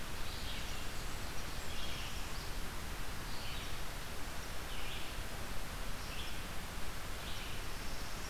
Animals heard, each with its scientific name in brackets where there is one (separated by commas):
Red-eyed Vireo (Vireo olivaceus), Northern Parula (Setophaga americana)